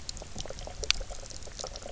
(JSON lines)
{"label": "biophony, knock croak", "recorder": "SoundTrap 300"}